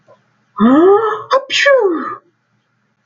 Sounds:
Sneeze